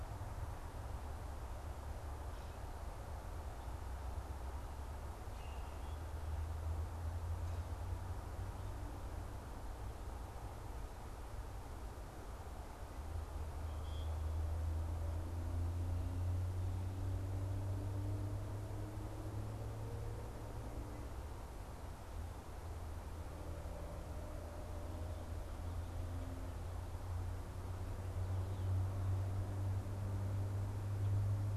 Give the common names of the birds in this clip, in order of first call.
unidentified bird